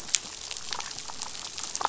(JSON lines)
{"label": "biophony, dolphin", "recorder": "SoundTrap 500"}